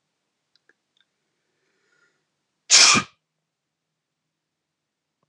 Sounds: Sneeze